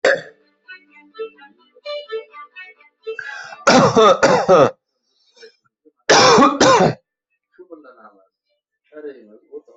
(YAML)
expert_labels:
- quality: poor
  cough_type: dry
  dyspnea: false
  wheezing: false
  stridor: false
  choking: false
  congestion: false
  nothing: true
  diagnosis: COVID-19
  severity: mild
age: 22
gender: female
respiratory_condition: false
fever_muscle_pain: true
status: COVID-19